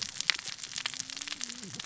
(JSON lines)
{"label": "biophony, cascading saw", "recorder": "SoundTrap 600 or HydroMoth"}